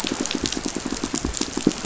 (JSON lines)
{"label": "biophony, pulse", "recorder": "SoundTrap 500"}